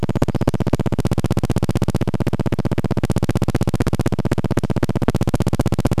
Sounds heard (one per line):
Brown Creeper song
recorder noise